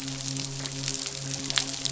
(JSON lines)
{"label": "biophony, midshipman", "recorder": "SoundTrap 500"}